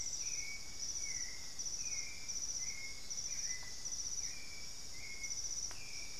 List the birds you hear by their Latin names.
Turdus albicollis